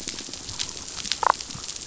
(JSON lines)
{"label": "biophony", "recorder": "SoundTrap 500"}
{"label": "biophony, damselfish", "recorder": "SoundTrap 500"}